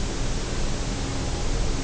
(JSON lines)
{"label": "biophony", "recorder": "SoundTrap 300"}